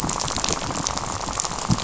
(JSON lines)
{"label": "biophony, rattle", "recorder": "SoundTrap 500"}